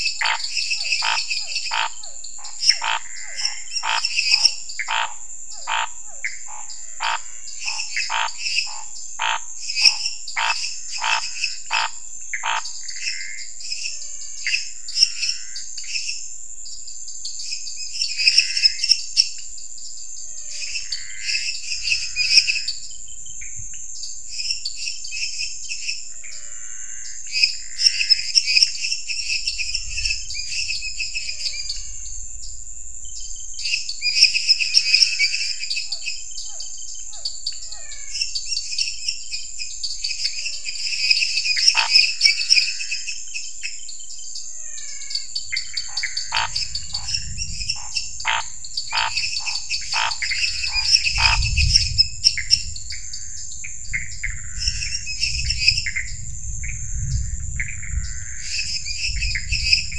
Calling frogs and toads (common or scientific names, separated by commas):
Scinax fuscovarius, lesser tree frog, dwarf tree frog, Pithecopus azureus, menwig frog, Physalaemus cuvieri